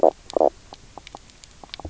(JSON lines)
{"label": "biophony, knock croak", "recorder": "SoundTrap 300"}